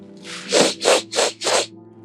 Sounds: Sniff